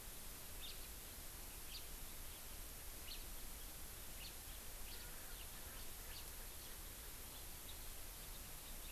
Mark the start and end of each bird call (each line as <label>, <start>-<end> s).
House Finch (Haemorhous mexicanus), 0.6-0.8 s
House Finch (Haemorhous mexicanus), 1.6-1.9 s
House Finch (Haemorhous mexicanus), 3.0-3.2 s
House Finch (Haemorhous mexicanus), 4.1-4.4 s
House Finch (Haemorhous mexicanus), 4.8-5.1 s
House Finch (Haemorhous mexicanus), 6.0-6.2 s